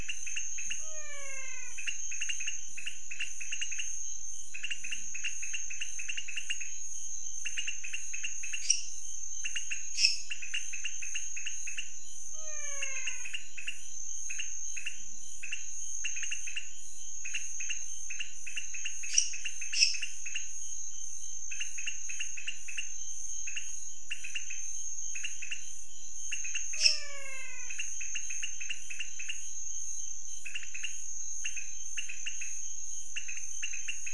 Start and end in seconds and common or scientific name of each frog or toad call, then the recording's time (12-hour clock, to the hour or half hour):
0.0	34.1	pointedbelly frog
0.8	2.0	menwig frog
8.5	9.0	lesser tree frog
9.9	10.4	lesser tree frog
12.3	13.4	menwig frog
19.0	20.3	lesser tree frog
26.7	27.3	lesser tree frog
26.7	27.9	menwig frog
12:30am